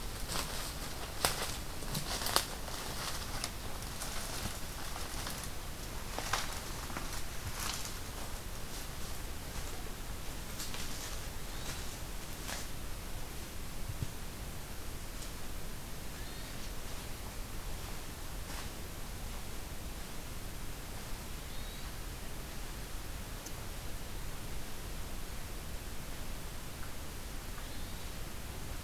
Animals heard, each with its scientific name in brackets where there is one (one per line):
Hermit Thrush (Catharus guttatus)